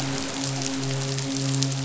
{"label": "biophony, midshipman", "recorder": "SoundTrap 500"}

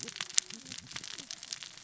{"label": "biophony, cascading saw", "recorder": "SoundTrap 600 or HydroMoth"}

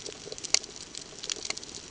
{"label": "ambient", "recorder": "HydroMoth"}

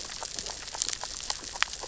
{"label": "biophony, grazing", "recorder": "SoundTrap 600 or HydroMoth"}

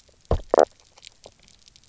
{"label": "biophony, knock croak", "recorder": "SoundTrap 300"}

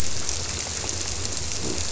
{"label": "biophony", "recorder": "SoundTrap 300"}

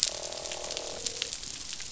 {"label": "biophony, croak", "recorder": "SoundTrap 500"}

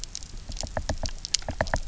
{"label": "biophony, knock", "recorder": "SoundTrap 300"}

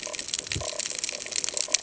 {"label": "ambient", "recorder": "HydroMoth"}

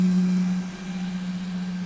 {"label": "anthrophony, boat engine", "recorder": "SoundTrap 500"}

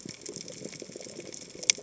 {"label": "biophony, chatter", "recorder": "HydroMoth"}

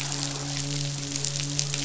{"label": "biophony, midshipman", "recorder": "SoundTrap 500"}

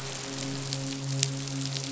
{"label": "biophony, midshipman", "recorder": "SoundTrap 500"}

